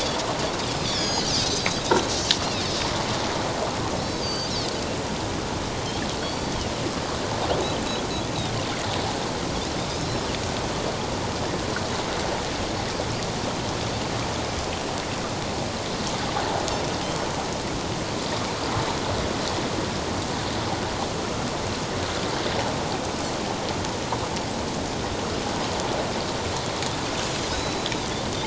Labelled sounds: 0.8	1.8	Pacific white-sided dolphin, 2.9 to 7.0 kHz
4.2	4.5	Pacific white-sided dolphin, 4.4 to 6.3 kHz
6.2	6.7	Pacific white-sided dolphin, 2.7 to 4.7 kHz
10.0	10.3	Pacific white-sided dolphin, 5.2 to 5.4 kHz
27.5	27.9	Pacific white-sided dolphin, 3.8 to 4.0 kHz

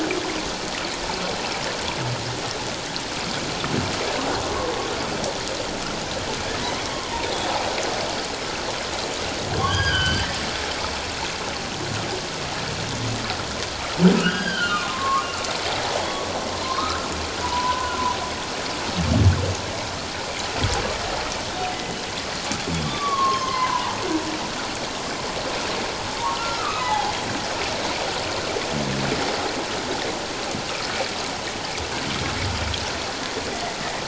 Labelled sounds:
9.6	10.3	humpback whale, 1.4 to 4.8 kHz
14.2	15.2	humpback whale, 1.0 to 5.0 kHz
16.6	18.0	humpback whale, 0.91 to 1.6 kHz
21.7	22.0	humpback whale, 1.9 to 2.1 kHz
22.8	24.0	humpback whale, 0.81 to 4.4 kHz
26.4	27.1	humpback whale, 0.78 to 2.1 kHz

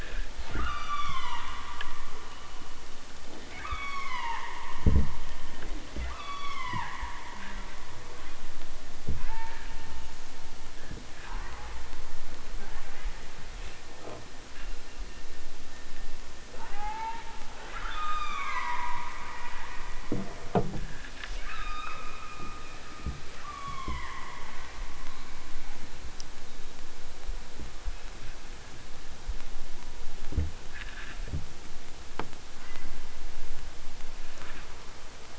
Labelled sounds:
0.4	1.6	killer whale, southern Alaska resident, 0.55 to 8.0 kHz
3.4	4.8	killer whale, southern Alaska resident, 0.37 to 8.0 kHz
5.9	7.2	killer whale, southern Alaska resident, 0.64 to 8.0 kHz
9.1	9.7	killer whale, southern Alaska resident, 0.46 to 4.9 kHz
11.2	11.9	killer whale, southern Alaska resident, 0.32 to 3.5 kHz
12.6	13.3	killer whale, southern Alaska resident, 0.51 to 3.4 kHz
16.4	17.3	killer whale, southern Alaska resident, 0.37 to 4.0 kHz
17.6	20.3	killer whale, southern Alaska resident, 0.46 to 8.0 kHz
21.4	22.1	killer whale, southern Alaska resident, 0.74 to 5.6 kHz
23.4	24.3	killer whale, southern Alaska resident, 0.60 to 3.7 kHz
25.0	25.9	killer whale, southern Alaska resident, 0.32 to 2.9 kHz
32.6	32.9	killer whale, southern Alaska resident, 0.60 to 2.4 kHz

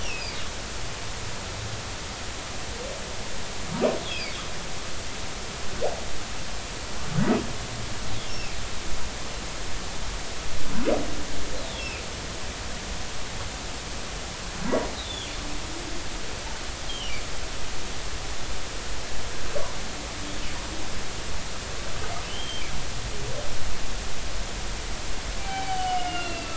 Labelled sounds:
0.0	0.4	humpback whale, 2.1 to 5.2 kHz
4.1	4.4	humpback whale, 2.1 to 2.7 kHz
8.3	8.6	humpback whale, 2.2 to 2.8 kHz
11.6	12.0	humpback whale, 2.3 to 4.2 kHz
15.0	15.3	humpback whale, 3.0 to 3.6 kHz
16.9	17.2	humpback whale, 2.7 to 3.4 kHz
22.3	22.7	humpback whale, 2.9 to 3.3 kHz
25.4	26.5	humpback whale, 0.80 to 3.1 kHz

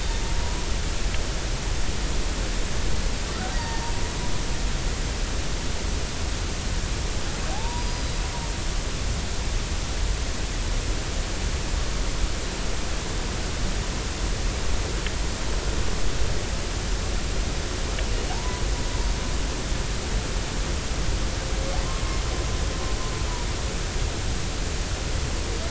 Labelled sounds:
0.4	0.7	humpback whale, 0.93 to 1.1 kHz
3.5	3.8	humpback whale, 1.7 to 2.0 kHz
7.5	8.1	humpback whale, 0.80 to 5.0 kHz
18.3	18.6	humpback whale, 0.80 to 1.1 kHz

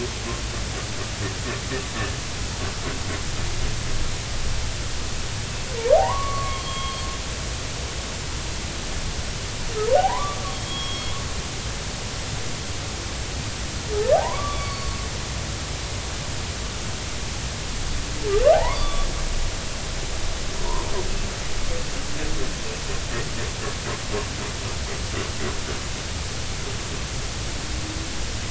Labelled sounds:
5.9	7.0	humpback whale, 0.80 to 3.3 kHz
9.9	11.2	humpback whale, 0.80 to 3.4 kHz
14.1	15.0	humpback whale, 0.80 to 4.6 kHz
18.5	19.1	humpback whale, 0.80 to 3.6 kHz

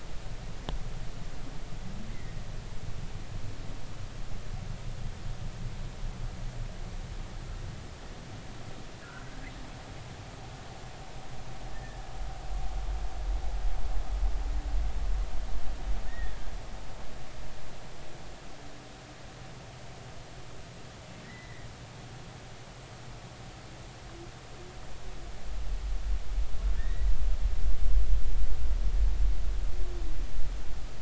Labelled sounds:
9.0	9.5	humpback whale, 1.3 to 2.1 kHz
11.7	12.1	humpback whale, 1.6 to 1.9 kHz
16.1	16.4	humpback whale, 1.6 to 2.0 kHz
21.2	21.7	humpback whale, 1.8 to 2.1 kHz
26.8	27.1	humpback whale, 1.7 to 2.0 kHz

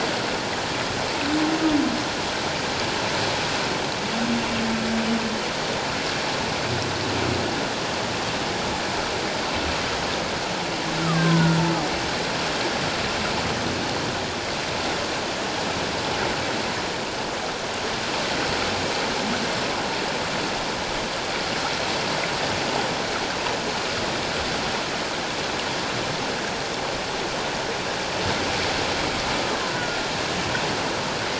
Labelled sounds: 11.0	11.6	killer whale, Bigg's (transient), 0.91 to 1.7 kHz
29.7	30.1	killer whale, Bigg's (transient), 1.4 to 1.5 kHz

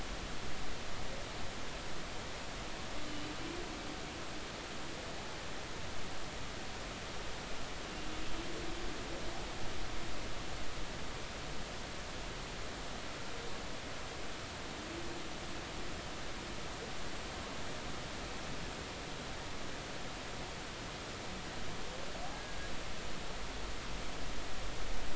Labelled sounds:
22.3	22.6	humpback whale, 1.6 to 1.7 kHz

